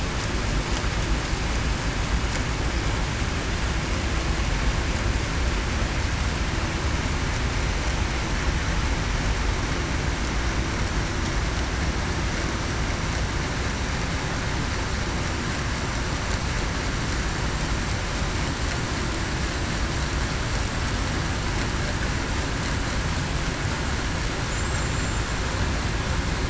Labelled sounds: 24.8	25.2	killer whale, Bigg's (transient), 7.2 to 7.3 kHz

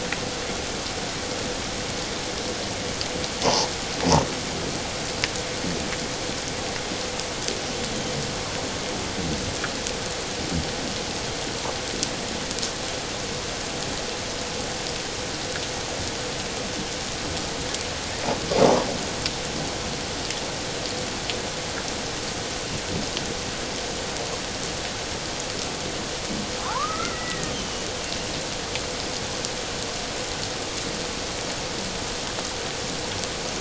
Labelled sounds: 26.7	27.9	killer whale, Bigg's (transient), 0.78 to 3.3 kHz

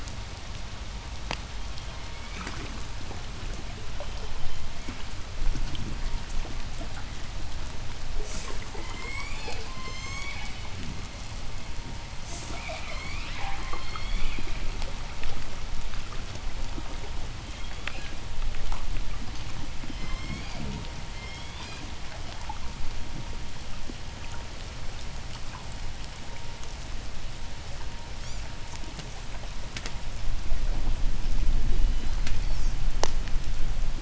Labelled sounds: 1.5	2.8	killer whale, southern resident, J pod, 1.1 to 5.2 kHz
3.6	5.0	killer whale, southern resident, J pod, 1.9 to 4.7 kHz
8.0	8.7	killer whale, southern resident, J pod, 3.1 to 8.0 kHz
8.5	10.7	killer whale, southern resident, J pod, call S01, 0.84 to 8.0 kHz
12.1	12.8	killer whale, southern resident, J pod, 4.2 to 8.0 kHz
12.3	13.7	killer whale, southern resident, J pod, call S01 and call S10, 0.44 to 5.2 kHz
13.7	14.6	killer whale, southern resident, J pod, call S01, 0.84 to 5.4 kHz
17.3	18.5	killer whale, southern resident, J pod, 1.6 to 4.1 kHz
19.4	22.0	killer whale, southern resident, J pod, 1.7 to 7.9 kHz
27.9	28.8	killer whale, southern resident, J pod, 2.8 to 8.0 kHz
31.7	33.0	killer whale, southern resident, J pod, 2.4 to 8.0 kHz

